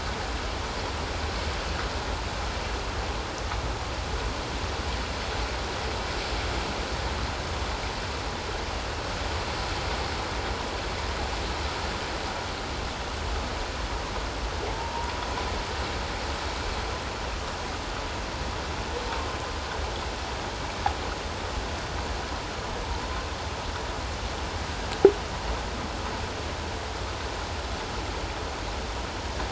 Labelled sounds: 14.6	14.9	humpback whale, 0.78 to 0.97 kHz

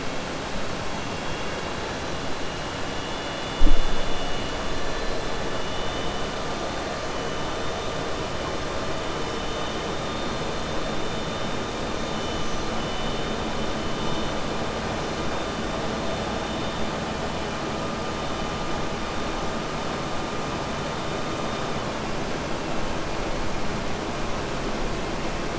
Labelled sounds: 1.2	2.0	killer whale, southern resident, 2.0 to 4.0 kHz

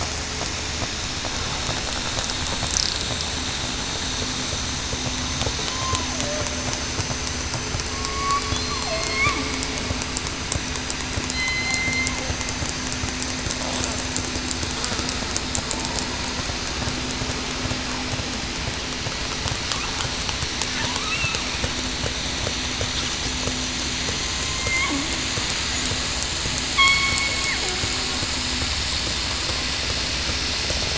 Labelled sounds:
5.7	6.1	killer whale, southern resident, 0.94 to 1.1 kHz
7.9	9.3	killer whale, southern resident, 0.61 to 4.4 kHz
11.3	12.1	killer whale, southern resident, 2.0 to 4.2 kHz
21.0	21.4	killer whale, southern resident, 2.5 to 2.8 kHz
24.5	24.9	killer whale, southern resident, 2.0 to 2.3 kHz
26.7	27.2	killer whale, southern resident, 2.1 to 2.3 kHz

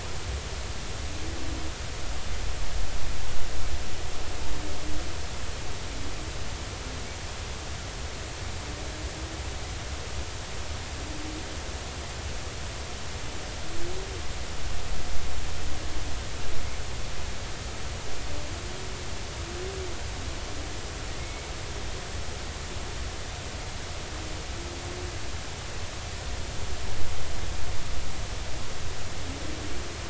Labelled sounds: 22.2	22.5	humpback whale, 2.0 to 2.3 kHz

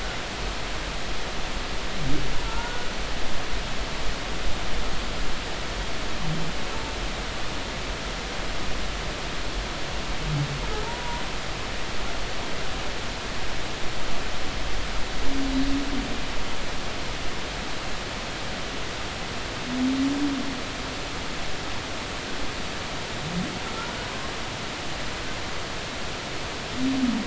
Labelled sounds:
2.4	2.9	humpback whale, 0.86 to 1.5 kHz
10.8	11.2	humpback whale, 0.86 to 1.0 kHz
24.0	24.3	humpback whale, 0.96 to 1.1 kHz

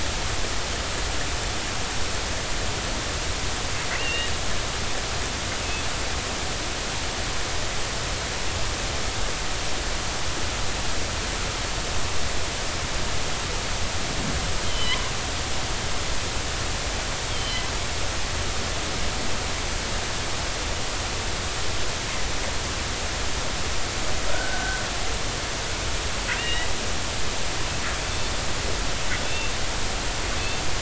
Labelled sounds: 3.9	4.3	killer whale, northern resident, G clan, 1.8 to 2.9 kHz
14.6	15.0	killer whale, northern resident, G clan, 2.9 to 3.3 kHz
17.3	17.6	killer whale, northern resident, G clan, 3.0 to 3.4 kHz
24.3	24.8	killer whale, northern resident, G clan, 1.4 to 1.6 kHz
26.4	26.7	killer whale, northern resident, G clan, 1.8 to 3.9 kHz
29.2	29.5	killer whale, northern resident, G clan, 2.6 to 3.6 kHz

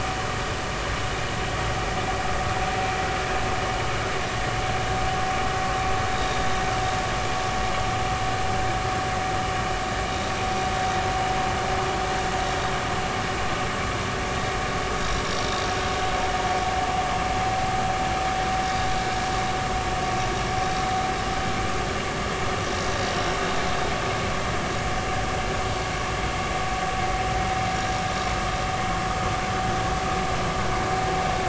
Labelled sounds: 6.1	6.5	vessel noise, 3.6 to 3.8 kHz

